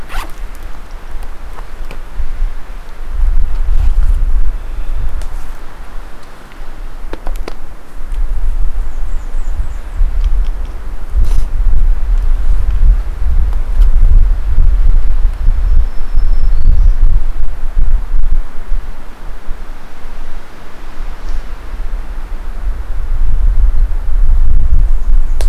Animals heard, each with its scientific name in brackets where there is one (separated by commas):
Black-throated Green Warbler (Setophaga virens), Blackburnian Warbler (Setophaga fusca)